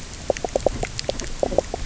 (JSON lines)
{"label": "biophony, knock croak", "recorder": "SoundTrap 300"}